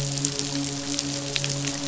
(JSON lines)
{"label": "biophony, midshipman", "recorder": "SoundTrap 500"}